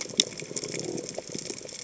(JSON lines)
{"label": "biophony", "recorder": "HydroMoth"}